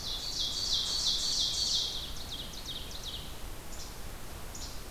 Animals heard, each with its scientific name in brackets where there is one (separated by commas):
Ovenbird (Seiurus aurocapilla), Least Flycatcher (Empidonax minimus)